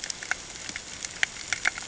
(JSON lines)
{"label": "ambient", "recorder": "HydroMoth"}